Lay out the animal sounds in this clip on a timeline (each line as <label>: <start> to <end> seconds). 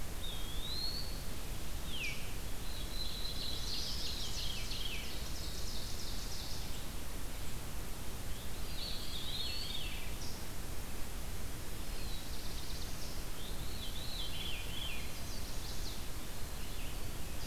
Eastern Wood-Pewee (Contopus virens): 0.0 to 1.2 seconds
Red-eyed Vireo (Vireo olivaceus): 0.0 to 7.2 seconds
Veery (Catharus fuscescens): 1.7 to 2.2 seconds
Black-throated Blue Warbler (Setophaga caerulescens): 2.6 to 4.2 seconds
Chestnut-sided Warbler (Setophaga pensylvanica): 3.2 to 4.6 seconds
Ovenbird (Seiurus aurocapilla): 4.5 to 7.1 seconds
Veery (Catharus fuscescens): 8.5 to 10.1 seconds
Eastern Wood-Pewee (Contopus virens): 8.7 to 9.9 seconds
Black-throated Blue Warbler (Setophaga caerulescens): 11.7 to 13.3 seconds
Veery (Catharus fuscescens): 13.4 to 15.1 seconds
Chestnut-sided Warbler (Setophaga pensylvanica): 14.9 to 16.2 seconds